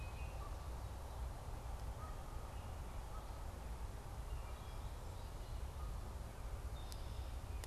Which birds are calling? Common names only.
Canada Goose